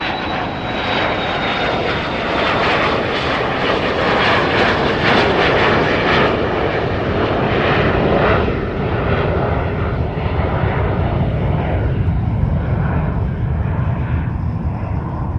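0.0s An airplane is taking off. 15.4s

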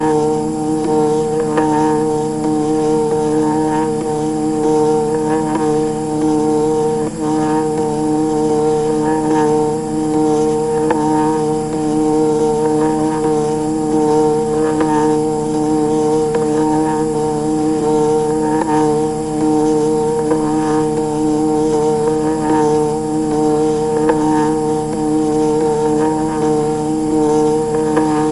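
0.0s A droning and humming sound from an electronic device. 28.3s

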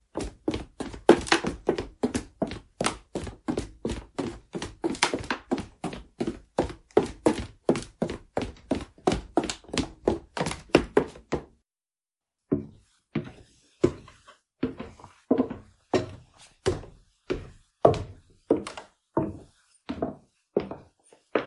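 0.0s Rhythmic clicks of high heels on a wooden floor in a small room. 21.5s

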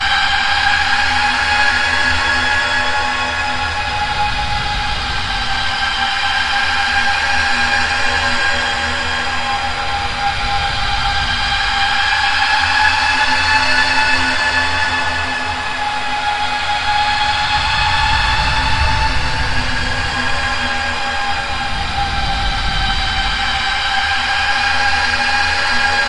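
0.0s A loud, long, continuous, and eerie warning sound. 26.1s

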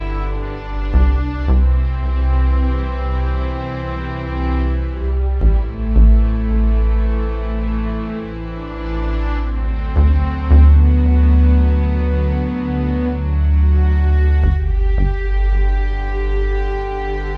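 0.0s An orchestra is playing a calming piece. 17.4s

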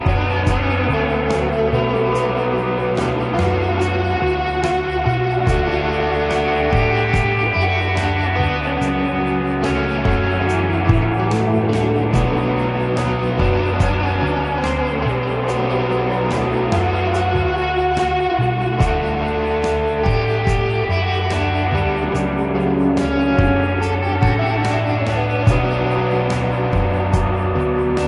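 0.0s A drum is being played in rhythm. 28.1s
0.0s An electric guitar is played with distortion and echo. 28.1s

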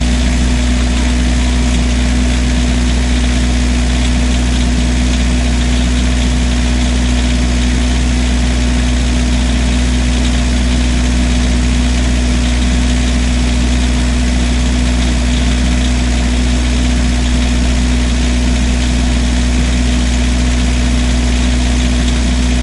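0.0s A loud mechanical sound of an idling diesel engine. 22.6s

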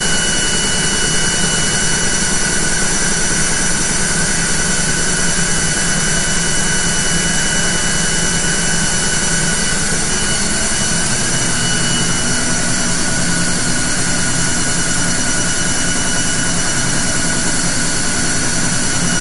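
0.0s The rhythmic metallic sound of a washing machine spinning quickly. 19.2s

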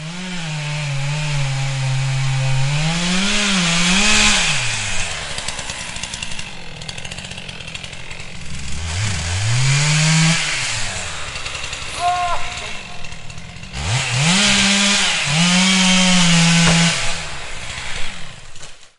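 0.0s A chainsaw cuts through wood, producing a loud buzzing noise. 19.0s
12.0s A man is shouting loudly with a strong and clear voice. 13.3s

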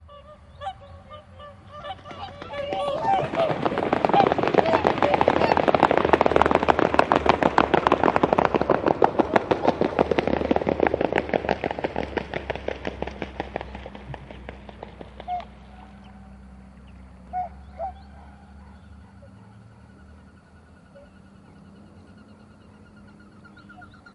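0.0s A swan squawks repeatedly. 6.0s
0.0s Waves crashing against the shore repeatedly in the distance. 24.1s
0.0s Quiet continuous bird chirping in the background. 1.9s
1.8s Multiple birds flapping their wings loudly and repeatedly. 15.3s
9.3s A muffled swan squawks repeatedly. 10.4s
15.2s A bird chirps loudly once. 15.6s
15.5s Birds chirping continuously in the distance. 24.1s
17.3s A bird chirps loudly and repeatedly. 17.9s
17.9s A dog is panting in the distance. 20.6s
19.1s A bird produces a repeated oscillating sound. 24.1s
20.9s A muffled bird call is heard in the distance. 21.3s

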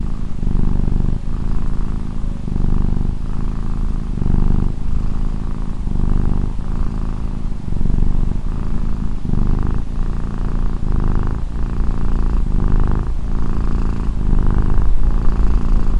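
0.0s A cat is purring loudly. 16.0s

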